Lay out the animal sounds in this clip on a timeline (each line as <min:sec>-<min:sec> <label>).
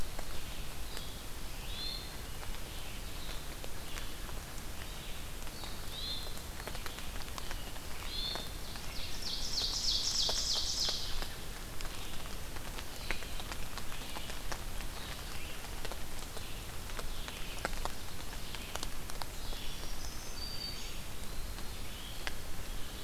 0:00.0-0:23.0 Red-eyed Vireo (Vireo olivaceus)
0:01.5-0:02.6 Hermit Thrush (Catharus guttatus)
0:05.6-0:06.8 Hermit Thrush (Catharus guttatus)
0:07.9-0:08.7 Hermit Thrush (Catharus guttatus)
0:08.4-0:11.3 Ovenbird (Seiurus aurocapilla)
0:19.6-0:21.3 Black-throated Green Warbler (Setophaga virens)